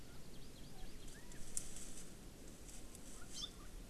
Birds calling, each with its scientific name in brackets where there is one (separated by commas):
Hawaii Amakihi (Chlorodrepanis virens)